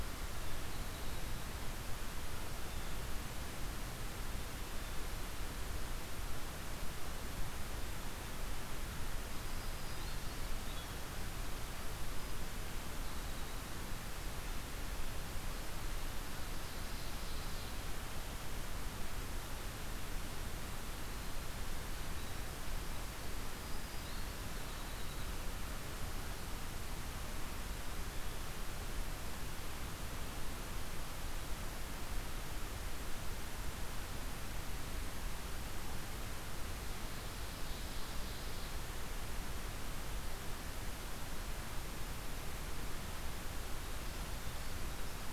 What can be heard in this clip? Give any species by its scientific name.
Cyanocitta cristata, Setophaga virens, Troglodytes hiemalis, Seiurus aurocapilla